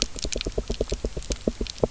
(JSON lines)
{"label": "biophony, knock", "recorder": "SoundTrap 300"}